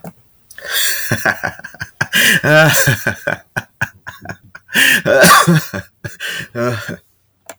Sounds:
Laughter